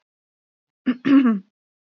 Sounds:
Throat clearing